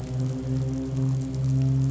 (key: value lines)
label: anthrophony, boat engine
recorder: SoundTrap 500